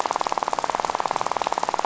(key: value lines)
label: biophony, rattle
recorder: SoundTrap 500